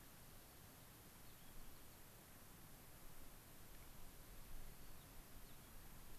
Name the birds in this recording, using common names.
White-crowned Sparrow